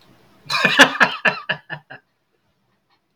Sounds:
Laughter